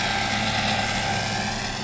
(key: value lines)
label: anthrophony, boat engine
recorder: SoundTrap 500